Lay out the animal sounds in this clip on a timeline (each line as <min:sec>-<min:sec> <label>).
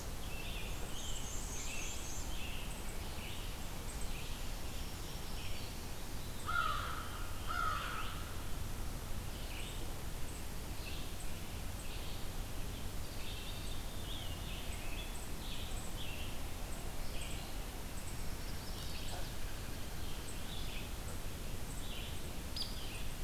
0:00.0-0:23.2 Red-eyed Vireo (Vireo olivaceus)
0:00.1-0:03.6 American Robin (Turdus migratorius)
0:00.8-0:02.4 Black-and-white Warbler (Mniotilta varia)
0:04.6-0:06.0 Black-throated Green Warbler (Setophaga virens)
0:06.0-0:08.0 Veery (Catharus fuscescens)
0:06.4-0:08.1 American Crow (Corvus brachyrhynchos)
0:13.1-0:16.3 Scarlet Tanager (Piranga olivacea)
0:18.3-0:19.4 Chestnut-sided Warbler (Setophaga pensylvanica)
0:22.5-0:22.8 Hairy Woodpecker (Dryobates villosus)